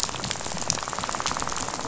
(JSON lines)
{"label": "biophony, rattle", "recorder": "SoundTrap 500"}